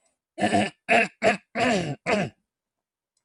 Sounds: Throat clearing